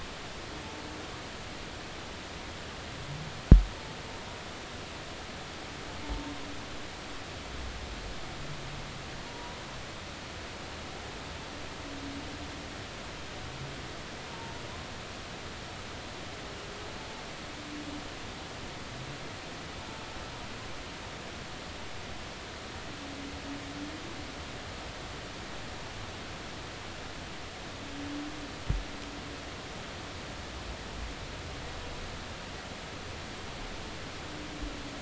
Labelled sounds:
9.2	9.6	humpback whale, 0.90 to 1.1 kHz
14.2	14.5	humpback whale, 0.86 to 0.99 kHz

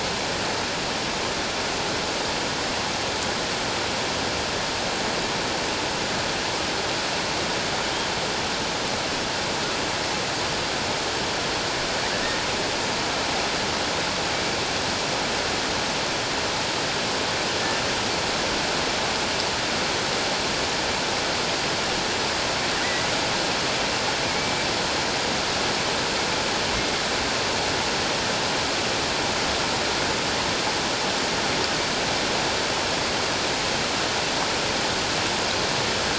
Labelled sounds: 22.8	23.1	killer whale, offshore, 1.9 to 2.0 kHz

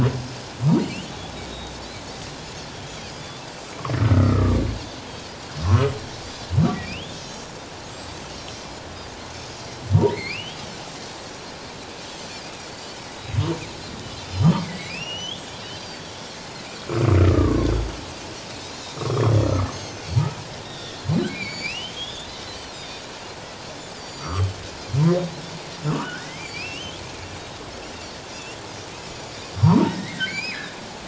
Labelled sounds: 0.8	1.1	humpback whale, 2.5 to 3.2 kHz
1.5	2.1	Pacific white-sided dolphin, 3.6 to 4.2 kHz
2.8	3.1	Pacific white-sided dolphin, 2.9 to 3.3 kHz
4.0	4.6	humpback whale, 1.1 to 2.1 kHz
5.6	5.9	humpback whale, 0.97 to 1.4 kHz
6.0	6.3	Pacific white-sided dolphin, 5.1 to 5.6 kHz
6.8	7.2	humpback whale, 2.2 to 3.7 kHz
7.1	7.5	Pacific white-sided dolphin, 5.5 to 6.0 kHz
8.3	8.6	Pacific white-sided dolphin, 5.4 to 5.7 kHz
9.6	9.9	Pacific white-sided dolphin, 4.0 to 5.7 kHz
10.1	10.6	humpback whale, 1.9 to 3.3 kHz
12.2	12.4	Pacific white-sided dolphin, 6.9 to 7.5 kHz
14.2	14.6	Pacific white-sided dolphin, 2.9 to 5.3 kHz
14.6	15.5	humpback whale, 1.9 to 6.0 kHz
15.7	16.4	Pacific white-sided dolphin, 4.4 to 5.8 kHz
17.2	17.7	humpback whale, 1.0 to 1.4 kHz
18.7	20.1	Pacific white-sided dolphin, 3.2 to 6.6 kHz
19.0	19.3	humpback whale, 1.0 to 1.4 kHz
20.6	21.1	humpback whale, 1.8 to 5.8 kHz
21.1	23.0	Pacific white-sided dolphin, 2.1 to 7.2 kHz
24.0	24.5	Pacific white-sided dolphin, 4.2 to 5.9 kHz
25.9	27.0	humpback whale, 1.1 to 3.5 kHz
26.4	26.7	Pacific white-sided dolphin, 4.4 to 5.1 kHz
29.1	29.5	Pacific white-sided dolphin, 4.5 to 7.0 kHz
29.6	30.8	humpback whale, 0.84 to 7.2 kHz

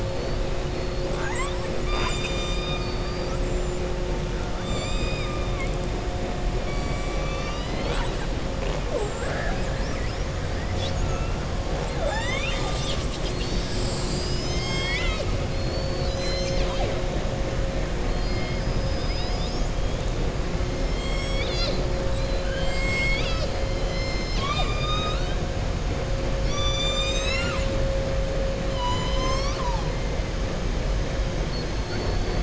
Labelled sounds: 1.0	1.6	killer whale, southern resident, 0.59 to 4.2 kHz
4.6	5.4	killer whale, southern resident, 2.3 to 5.1 kHz
15.5	17.0	killer whale, southern resident, 0.56 to 7.6 kHz
22.1	25.4	killer whale, southern resident, 0.73 to 7.6 kHz
26.3	27.7	killer whale, southern resident, 1.2 to 7.8 kHz
28.6	29.9	killer whale, southern resident, 0.82 to 7.9 kHz
31.8	32.4	killer whale, southern resident, 4.2 to 4.8 kHz

